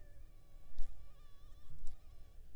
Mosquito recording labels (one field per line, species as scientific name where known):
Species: Anopheles funestus s.s.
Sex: female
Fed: unfed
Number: one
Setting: cup